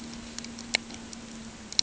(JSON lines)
{"label": "ambient", "recorder": "HydroMoth"}